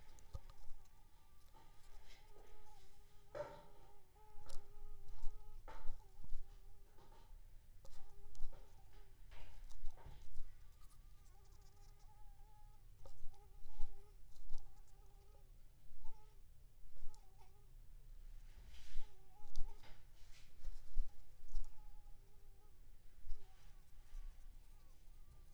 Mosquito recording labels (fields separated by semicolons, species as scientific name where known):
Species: Anopheles squamosus; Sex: female; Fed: unfed; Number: one; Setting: cup